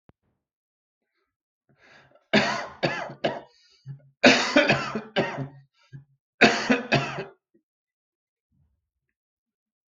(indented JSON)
{
  "expert_labels": [
    {
      "quality": "good",
      "cough_type": "wet",
      "dyspnea": false,
      "wheezing": false,
      "stridor": false,
      "choking": false,
      "congestion": false,
      "nothing": true,
      "diagnosis": "lower respiratory tract infection",
      "severity": "severe"
    }
  ],
  "age": 44,
  "gender": "male",
  "respiratory_condition": false,
  "fever_muscle_pain": false,
  "status": "COVID-19"
}